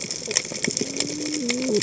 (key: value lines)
label: biophony, cascading saw
recorder: HydroMoth